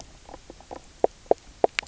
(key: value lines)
label: biophony, knock croak
recorder: SoundTrap 300